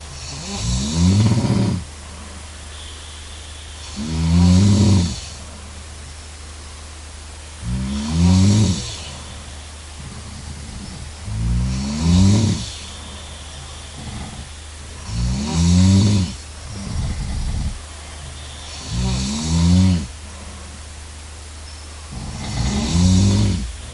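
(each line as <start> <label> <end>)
0.2 Someone is snoring. 2.0
3.9 Someone is snoring. 5.3
7.7 Someone is snoring. 9.0
11.2 Someone is snoring. 12.8
15.1 Someone is snoring. 16.5
18.7 Someone is snoring. 20.2
22.2 Someone is snoring. 23.9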